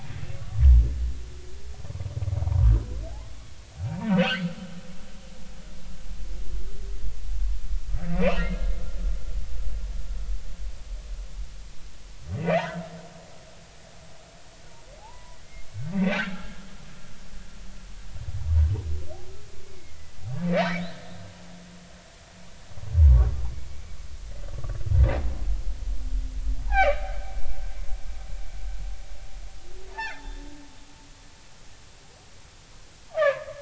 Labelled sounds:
0.4	0.6	humpback whale, 1.1 to 1.2 kHz
2.4	2.7	humpback whale, 0.90 to 1.2 kHz
4.1	4.6	humpback whale, 1.2 to 3.3 kHz
8.1	8.6	humpback whale, 2.5 to 2.8 kHz
12.5	12.8	humpback whale, 0.80 to 1.1 kHz
15.0	15.4	humpback whale, 0.80 to 1.1 kHz
15.9	16.6	humpback whale, 1.6 to 2.8 kHz
19.6	21.1	humpback whale, 1.7 to 4.2 kHz
23.7	24.8	humpback whale, 1.1 to 2.4 kHz
26.7	27.0	humpback whale, 0.80 to 4.0 kHz
29.9	30.3	humpback whale, 0.80 to 3.6 kHz
33.1	33.6	humpback whale, 0.99 to 2.0 kHz

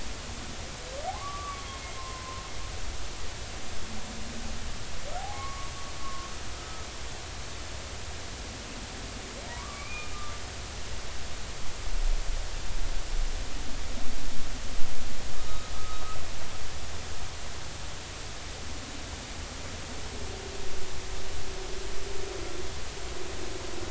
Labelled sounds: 1.1	1.7	humpback whale, 0.99 to 1.2 kHz
2.0	2.4	humpback whale, 0.99 to 1.1 kHz
5.2	5.7	humpback whale, 0.80 to 1.2 kHz
6.0	6.9	humpback whale, 1.0 to 1.3 kHz
9.5	10.4	humpback whale, 0.90 to 2.5 kHz
15.4	16.0	humpback whale, 1.2 to 3.8 kHz

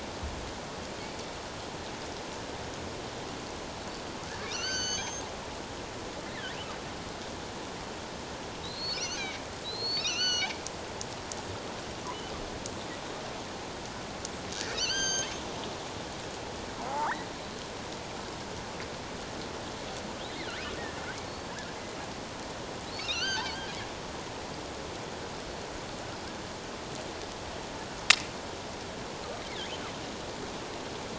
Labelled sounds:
4.3	5.2	killer whale, offshore, 1.3 to 6.6 kHz
8.6	10.5	killer whale, offshore, 1.3 to 6.6 kHz
14.6	15.3	killer whale, offshore, 1.4 to 6.7 kHz
16.9	17.2	killer whale, offshore, 0.78 to 1.5 kHz
21.2	21.6	killer whale, offshore, 4.3 to 4.7 kHz
23.0	23.6	killer whale, offshore, 1.2 to 6.4 kHz

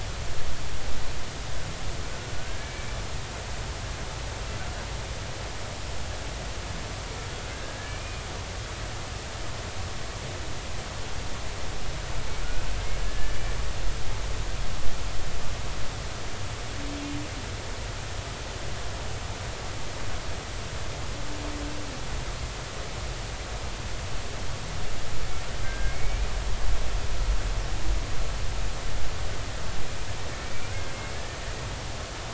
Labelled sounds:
2.4	2.9	humpback whale, 1.4 to 2.4 kHz
7.5	8.2	humpback whale, 1.5 to 2.5 kHz
13.0	13.4	humpback whale, 1.7 to 1.8 kHz
25.6	26.3	humpback whale, 1.5 to 2.5 kHz
30.4	31.4	humpback whale, 1.4 to 2.5 kHz

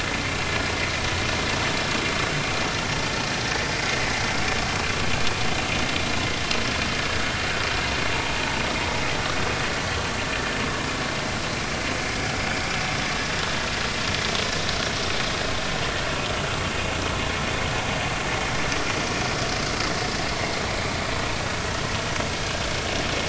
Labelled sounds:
22.4	22.6	vessel noise, 1.5 to 1.7 kHz

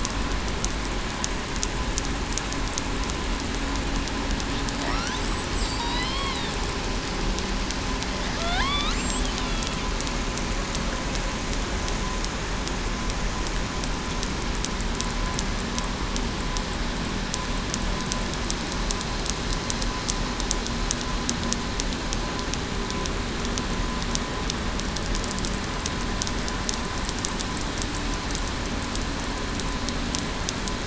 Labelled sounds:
5.8	6.2	killer whale, southern resident, 3.7 to 4.3 kHz
8.6	8.9	killer whale, southern resident, 0.98 to 4.1 kHz

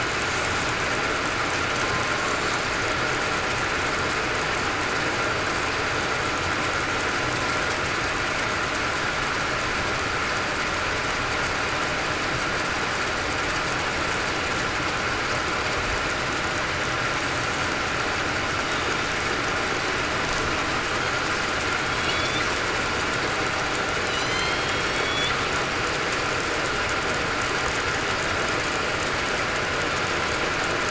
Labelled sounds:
22.0	22.4	killer whale, southern resident, 3.3 to 3.6 kHz
24.0	24.4	killer whale, southern resident, 3.9 to 4.1 kHz
24.8	25.2	killer whale, southern resident, 4.4 to 4.5 kHz

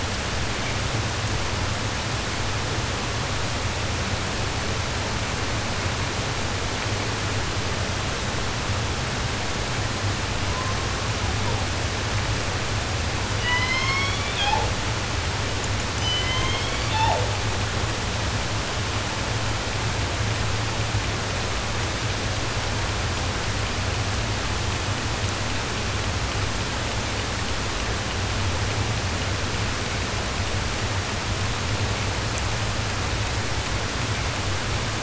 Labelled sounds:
10.4	11.7	killer whale, southern resident, 0.17 to 1.5 kHz
13.3	14.7	killer whale, southern resident, J pod, call S01, 0.10 to 8.0 kHz
15.9	17.4	killer whale, southern resident, J pod, call S01, 0.10 to 7.8 kHz

